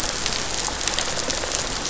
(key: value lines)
label: biophony, rattle response
recorder: SoundTrap 500